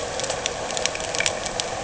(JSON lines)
{"label": "anthrophony, boat engine", "recorder": "HydroMoth"}